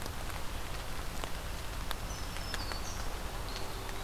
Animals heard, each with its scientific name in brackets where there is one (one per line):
Black-throated Green Warbler (Setophaga virens)
Eastern Wood-Pewee (Contopus virens)